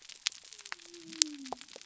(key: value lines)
label: biophony
recorder: SoundTrap 300